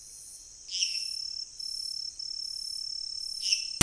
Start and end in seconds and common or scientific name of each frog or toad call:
0.6	1.4	lesser tree frog
3.3	3.8	lesser tree frog